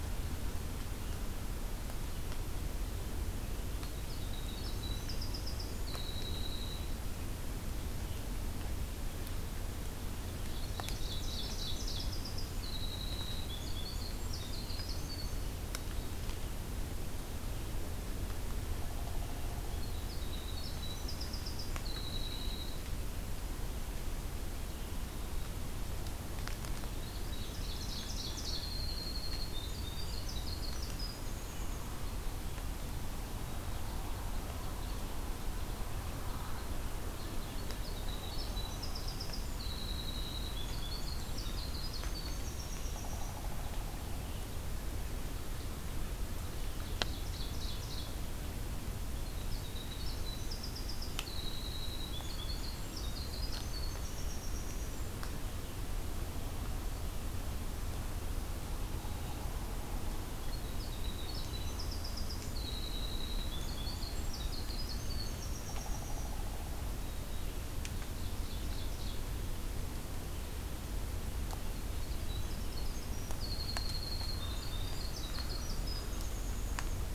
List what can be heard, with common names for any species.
Winter Wren, Ovenbird, Pileated Woodpecker